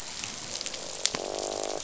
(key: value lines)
label: biophony, croak
recorder: SoundTrap 500